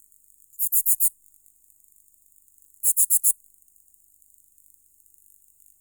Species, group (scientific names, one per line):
Phyllomimus inversus
Orthoptera